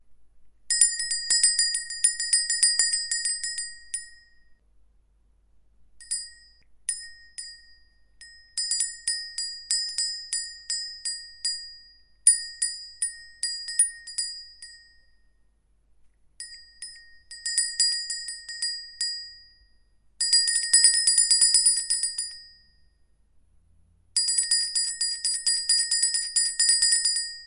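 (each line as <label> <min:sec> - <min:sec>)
A bell rings steadily, gradually getting quieter. 0:00.6 - 0:04.3
A bell rings repeatedly with short pauses. 0:05.9 - 0:07.8
A bell rings irregularly, alternating between faster and slower tempos. 0:08.3 - 0:15.9
A bell rings increasingly loudly. 0:16.3 - 0:19.5
A bell rings rapidly. 0:20.2 - 0:22.7
A bell rings steadily. 0:24.0 - 0:27.5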